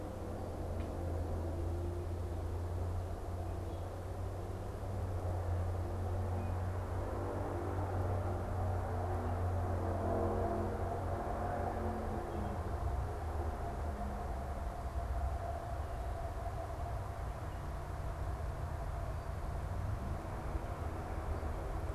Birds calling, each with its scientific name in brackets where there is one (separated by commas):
unidentified bird